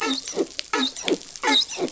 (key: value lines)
label: biophony, dolphin
recorder: SoundTrap 500